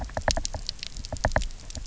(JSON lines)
{"label": "biophony, knock", "recorder": "SoundTrap 300"}